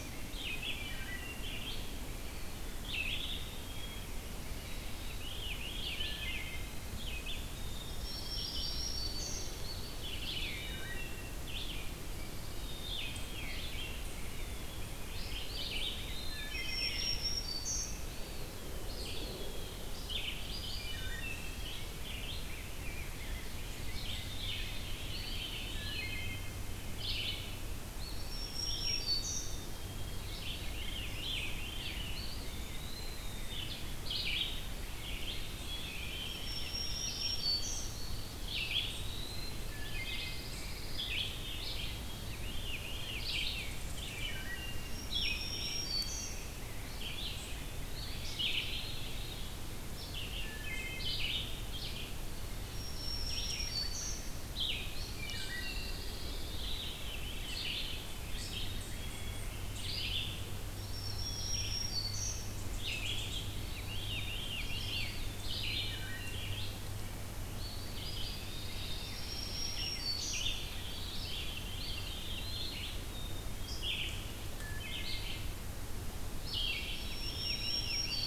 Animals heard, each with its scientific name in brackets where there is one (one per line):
Black-throated Green Warbler (Setophaga virens)
Veery (Catharus fuscescens)
Eastern Wood-Pewee (Contopus virens)
Pine Warbler (Setophaga pinus)
Black-capped Chickadee (Poecile atricapillus)
Wood Thrush (Hylocichla mustelina)
Ovenbird (Seiurus aurocapilla)
Red-eyed Vireo (Vireo olivaceus)
Blackburnian Warbler (Setophaga fusca)
unidentified call
Rose-breasted Grosbeak (Pheucticus ludovicianus)